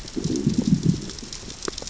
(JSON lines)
{"label": "biophony, growl", "recorder": "SoundTrap 600 or HydroMoth"}